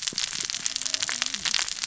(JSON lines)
{"label": "biophony, cascading saw", "recorder": "SoundTrap 600 or HydroMoth"}